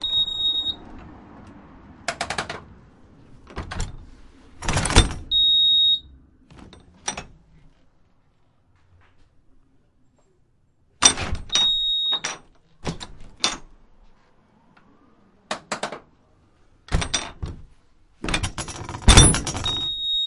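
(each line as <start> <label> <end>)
0.0 A metallic beep sounds. 0.8
2.0 A heavy wooden door is moving. 2.7
3.5 The metal door latch moves. 4.1
4.6 A heavy wooden door is moving. 5.3
5.3 A loud metallic beep. 6.0
6.5 The metal door latch moves. 7.3
11.0 The metal door latch moves. 11.5
11.5 A metallic beep sounds. 12.2
12.2 The metal door latch moves. 12.5
12.8 A heavy wooden door is moving. 13.3
13.4 The metal door latch moves. 13.7
15.5 A heavy wooden door is moving. 16.1
16.9 The metal door latch moves. 17.7
18.3 A heavy wooden door is moving. 19.1
19.1 The metal latch of a door moves. 19.7
19.7 A metallic beep sounds. 20.1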